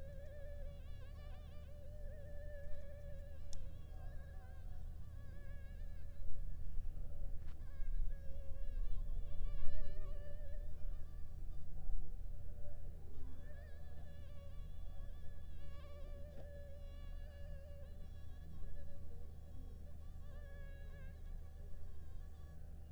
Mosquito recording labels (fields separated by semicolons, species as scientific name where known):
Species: Anopheles funestus s.s.; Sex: female; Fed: unfed; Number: one; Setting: cup